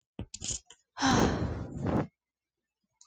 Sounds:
Sigh